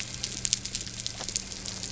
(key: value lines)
label: anthrophony, boat engine
recorder: SoundTrap 300